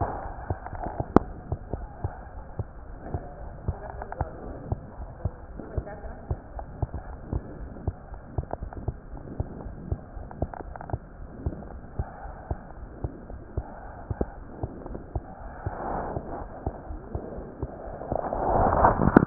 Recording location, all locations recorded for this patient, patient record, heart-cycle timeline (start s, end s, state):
aortic valve (AV)
aortic valve (AV)+mitral valve (MV)
#Age: Infant
#Sex: Male
#Height: 66.0 cm
#Weight: 11.0 kg
#Pregnancy status: False
#Murmur: Unknown
#Murmur locations: nan
#Most audible location: nan
#Systolic murmur timing: nan
#Systolic murmur shape: nan
#Systolic murmur grading: nan
#Systolic murmur pitch: nan
#Systolic murmur quality: nan
#Diastolic murmur timing: nan
#Diastolic murmur shape: nan
#Diastolic murmur grading: nan
#Diastolic murmur pitch: nan
#Diastolic murmur quality: nan
#Outcome: Normal
#Campaign: 2015 screening campaign
0.00	2.84	unannotated
2.84	2.98	S1
2.98	3.12	systole
3.12	3.22	S2
3.22	3.40	diastole
3.40	3.54	S1
3.54	3.66	systole
3.66	3.80	S2
3.80	3.94	diastole
3.94	4.06	S1
4.06	4.18	systole
4.18	4.32	S2
4.32	4.46	diastole
4.46	4.58	S1
4.58	4.68	systole
4.68	4.82	S2
4.82	4.98	diastole
4.98	5.10	S1
5.10	5.22	systole
5.22	5.36	S2
5.36	5.50	diastole
5.50	5.64	S1
5.64	5.74	systole
5.74	5.86	S2
5.86	6.01	diastole
6.01	6.16	S1
6.16	6.28	systole
6.28	6.40	S2
6.40	6.53	diastole
6.53	6.66	S1
6.66	6.78	systole
6.78	6.88	S2
6.88	19.26	unannotated